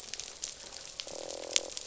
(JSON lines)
{"label": "biophony, croak", "recorder": "SoundTrap 500"}